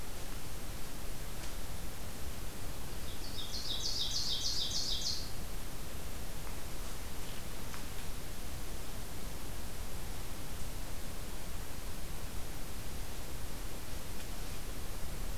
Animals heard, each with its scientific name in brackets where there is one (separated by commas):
Ovenbird (Seiurus aurocapilla)